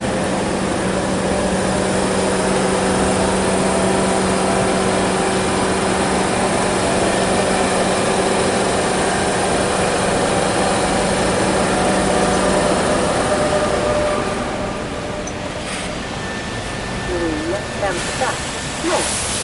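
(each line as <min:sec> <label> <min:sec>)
0:00.0 A large vehicle nearby is making a loud, steady noise. 0:15.1
0:17.2 An announcement is played over loudspeakers. 0:19.4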